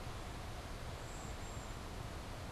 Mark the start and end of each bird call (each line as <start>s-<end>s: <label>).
0.8s-2.0s: Cedar Waxwing (Bombycilla cedrorum)